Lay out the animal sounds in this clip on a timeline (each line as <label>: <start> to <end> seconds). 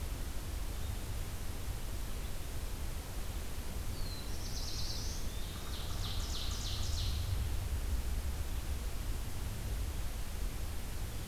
Black-throated Blue Warbler (Setophaga caerulescens): 3.6 to 5.2 seconds
Eastern Wood-Pewee (Contopus virens): 4.9 to 5.9 seconds
Ovenbird (Seiurus aurocapilla): 5.3 to 7.4 seconds